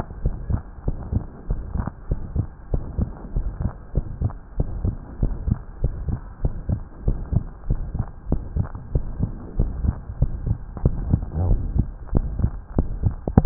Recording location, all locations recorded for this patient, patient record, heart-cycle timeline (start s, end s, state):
pulmonary valve (PV)
aortic valve (AV)+pulmonary valve (PV)+tricuspid valve (TV)+mitral valve (MV)
#Age: Child
#Sex: Female
#Height: 149.0 cm
#Weight: 33.9 kg
#Pregnancy status: False
#Murmur: Present
#Murmur locations: aortic valve (AV)+mitral valve (MV)+pulmonary valve (PV)+tricuspid valve (TV)
#Most audible location: tricuspid valve (TV)
#Systolic murmur timing: Holosystolic
#Systolic murmur shape: Plateau
#Systolic murmur grading: III/VI or higher
#Systolic murmur pitch: Medium
#Systolic murmur quality: Blowing
#Diastolic murmur timing: nan
#Diastolic murmur shape: nan
#Diastolic murmur grading: nan
#Diastolic murmur pitch: nan
#Diastolic murmur quality: nan
#Outcome: Abnormal
#Campaign: 2015 screening campaign
0.00	0.18	unannotated
0.18	0.34	S1
0.34	0.46	systole
0.46	0.60	S2
0.60	0.86	diastole
0.86	0.98	S1
0.98	1.12	systole
1.12	1.26	S2
1.26	1.50	diastole
1.50	1.62	S1
1.62	1.72	systole
1.72	1.86	S2
1.86	2.08	diastole
2.08	2.18	S1
2.18	2.32	systole
2.32	2.46	S2
2.46	2.70	diastole
2.70	2.84	S1
2.84	2.98	systole
2.98	3.12	S2
3.12	3.34	diastole
3.34	3.44	S1
3.44	3.58	systole
3.58	3.72	S2
3.72	3.92	diastole
3.92	4.04	S1
4.04	4.20	systole
4.20	4.32	S2
4.32	4.56	diastole
4.56	4.70	S1
4.70	4.82	systole
4.82	4.96	S2
4.96	5.19	diastole
5.19	5.36	S1
5.36	5.44	systole
5.44	5.56	S2
5.56	5.80	diastole
5.80	5.92	S1
5.92	6.06	systole
6.06	6.20	S2
6.20	6.42	diastole
6.42	6.56	S1
6.56	6.66	systole
6.66	6.80	S2
6.80	7.04	diastole
7.04	7.18	S1
7.18	7.30	systole
7.30	7.44	S2
7.44	7.66	diastole
7.66	7.78	S1
7.78	7.92	systole
7.92	8.04	S2
8.04	8.30	diastole
8.30	8.40	S1
8.40	8.54	systole
8.54	8.68	S2
8.68	8.94	diastole
8.94	9.04	S1
9.04	9.18	systole
9.18	9.32	S2
9.32	9.58	diastole
9.58	9.74	S1
9.74	9.83	systole
9.83	9.96	S2
9.96	10.20	diastole
10.20	10.34	S1
10.34	10.45	systole
10.45	10.58	S2
10.58	10.80	diastole
10.80	10.94	S1
10.94	11.06	systole
11.06	11.20	S2
11.20	11.40	diastole
11.40	11.58	S1
11.58	11.72	systole
11.72	11.88	S2
11.88	12.14	diastole
12.14	12.30	S1
12.30	12.38	systole
12.38	12.52	S2
12.52	12.76	diastole
12.76	12.88	S1
12.88	13.00	systole
13.00	13.14	S2
13.14	13.34	diastole
13.34	13.46	S1